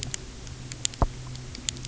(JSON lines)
{"label": "anthrophony, boat engine", "recorder": "SoundTrap 300"}